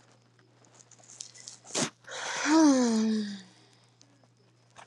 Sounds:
Sigh